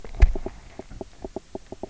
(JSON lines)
{"label": "biophony, knock croak", "recorder": "SoundTrap 300"}